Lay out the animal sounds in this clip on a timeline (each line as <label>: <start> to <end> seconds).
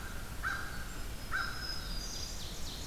American Crow (Corvus brachyrhynchos): 0.0 to 2.5 seconds
Black-throated Green Warbler (Setophaga virens): 0.9 to 2.7 seconds
Ovenbird (Seiurus aurocapilla): 1.8 to 2.9 seconds